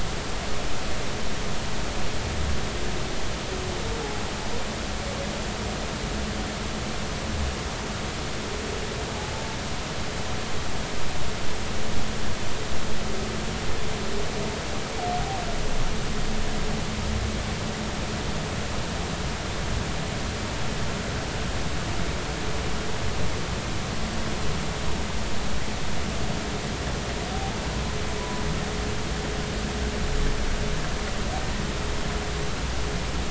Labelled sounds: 28.2	28.4	humpback whale, 0.93 to 1.0 kHz

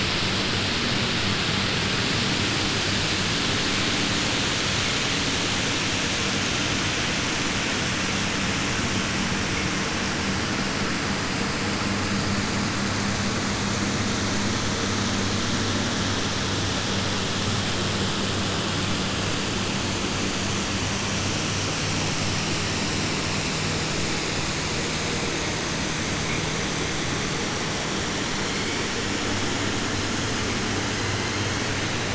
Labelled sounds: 28.2	29.0	killer whale, 1.3 to 5.0 kHz
30.8	31.8	killer whale, 1.4 to 4.9 kHz

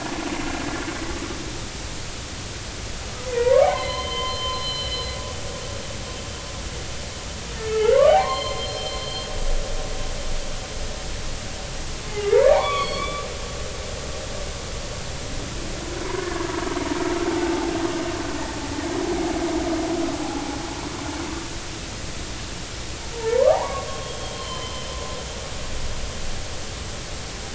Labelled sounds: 3.4	5.0	humpback whale, 0.80 to 4.2 kHz
7.7	9.3	humpback whale, 0.80 to 4.4 kHz
12.3	13.3	humpback whale, 0.80 to 4.5 kHz
16.0	16.4	humpback whale, 0.90 to 1.2 kHz
17.3	17.7	humpback whale, 0.80 to 0.93 kHz
20.2	20.4	humpback whale, 0.80 to 0.90 kHz
23.1	24.9	humpback whale, 0.80 to 3.3 kHz

